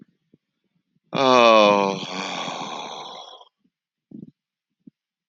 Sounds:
Sigh